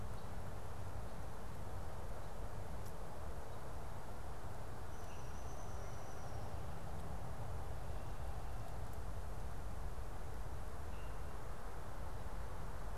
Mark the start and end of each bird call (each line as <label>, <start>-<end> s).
Downy Woodpecker (Dryobates pubescens), 4.5-6.4 s